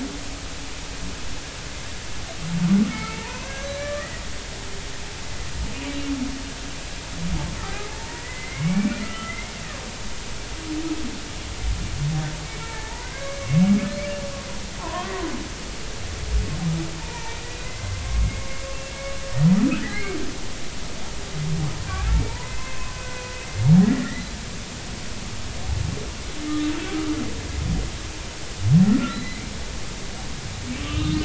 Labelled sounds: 2.9	4.2	humpback whale, 0.86 to 4.1 kHz
7.7	9.6	humpback whale, 0.86 to 2.5 kHz
12.5	13.6	humpback whale, 0.83 to 6.2 kHz
14.8	15.1	humpback whale, 0.83 to 1.2 kHz
17.0	18.5	humpback whale, 0.83 to 2.2 kHz
19.8	20.2	humpback whale, 1.5 to 4.4 kHz
22.3	23.2	humpback whale, 0.86 to 2.7 kHz
23.8	24.3	humpback whale, 1.7 to 2.1 kHz
29.1	29.4	humpback whale, 1.9 to 4.1 kHz
30.8	31.2	humpback whale, 1.1 to 1.3 kHz

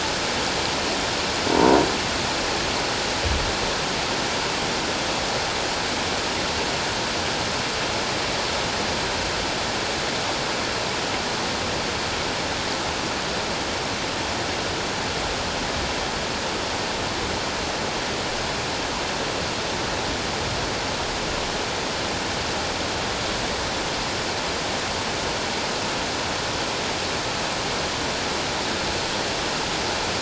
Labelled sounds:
1.5	1.8	croaking sound likely from a nearby submerged object, 0.88 to 1.1 kHz

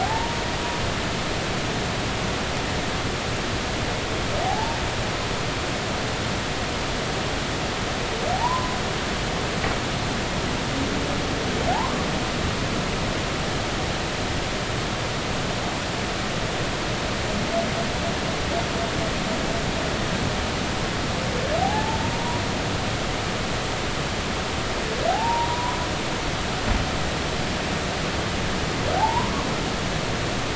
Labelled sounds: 0.0	0.4	humpback whale, 0.80 to 0.99 kHz
4.4	4.8	humpback whale, 0.80 to 0.96 kHz
8.3	8.8	humpback whale, 0.80 to 1.1 kHz
21.6	22.4	humpback whale, 0.80 to 1.1 kHz
25.1	25.8	humpback whale, 0.80 to 1.1 kHz
29.0	29.3	humpback whale, 0.80 to 1.1 kHz

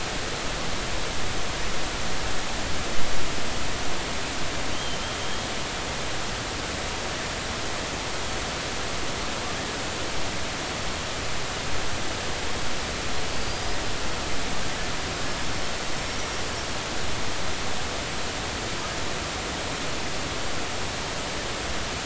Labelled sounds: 4.7	5.5	killer whale, Bigg's (transient), 3.0 to 3.3 kHz
13.3	13.8	killer whale, Bigg's (transient), 4.4 to 5.0 kHz

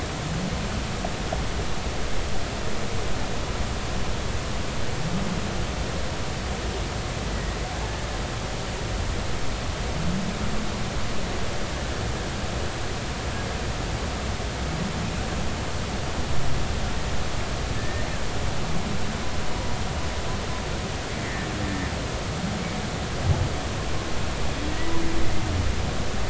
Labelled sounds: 7.3	7.6	humpback whale, 1.8 to 2.0 kHz
17.8	18.1	humpback whale, 1.7 to 2.0 kHz
21.2	21.9	humpback whale, 1.7 to 2.2 kHz

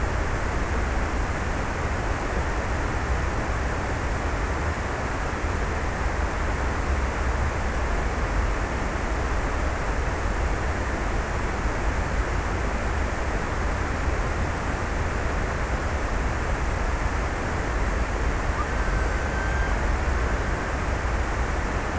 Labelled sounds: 18.1	21.9	killer whale, Bigg's (transient), 1.2 to 1.7 kHz

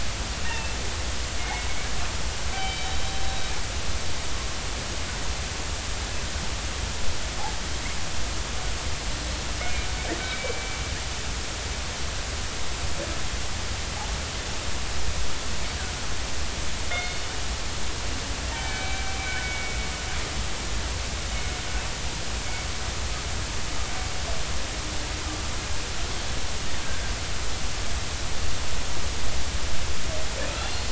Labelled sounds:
0.4	0.8	killer whale, northern resident, 2.6 to 2.8 kHz
1.4	1.7	killer whale, northern resident, 2.1 to 2.2 kHz
2.5	3.0	killer whale, northern resident, 2.2 to 3.9 kHz
9.6	9.9	killer whale, northern resident, 2.0 to 2.2 kHz
10.2	10.8	killer whale, northern resident, 2.2 to 2.4 kHz
16.9	17.2	killer whale, northern resident, 2.1 to 3.7 kHz
18.5	19.8	killer whale, northern resident, 1.4 to 2.4 kHz
30.5	30.8	killer whale, northern resident, 2.6 to 2.8 kHz

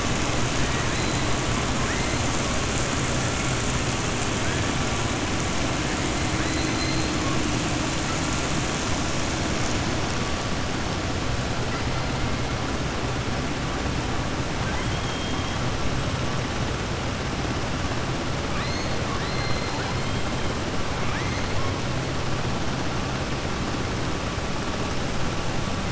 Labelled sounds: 6.4	7.1	killer whale, southern resident, 3.8 to 4.4 kHz
14.6	15.5	killer whale, southern resident, 0.84 to 3.3 kHz
18.4	19.7	killer whale, southern resident, 1.1 to 5.0 kHz

